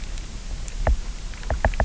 {"label": "biophony, knock", "recorder": "SoundTrap 300"}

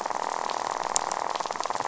{"label": "biophony, rattle", "recorder": "SoundTrap 500"}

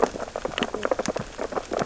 {"label": "biophony, sea urchins (Echinidae)", "recorder": "SoundTrap 600 or HydroMoth"}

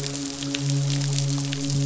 {"label": "biophony, midshipman", "recorder": "SoundTrap 500"}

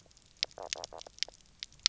{"label": "biophony, knock croak", "recorder": "SoundTrap 300"}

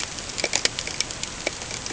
{"label": "ambient", "recorder": "HydroMoth"}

